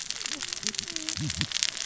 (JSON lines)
{"label": "biophony, cascading saw", "recorder": "SoundTrap 600 or HydroMoth"}